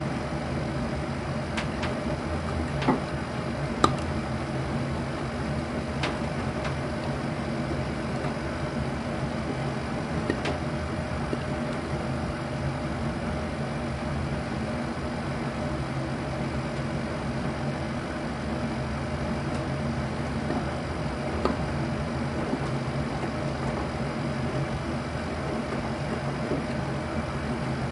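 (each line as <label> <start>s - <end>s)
The engine of a washing machine hums. 0.0s - 27.9s
A metallic creak. 1.5s - 2.1s
A metallic creak. 2.8s - 3.1s
A sharp pop. 3.8s - 4.1s
Metallic tapping sounds. 6.0s - 6.9s
A plastic cap is being opened. 10.3s - 12.1s
A sharp plastic pop. 21.4s - 21.9s
Clothes spinning quietly in a washing machine. 22.3s - 27.9s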